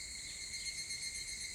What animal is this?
Tanna japonensis, a cicada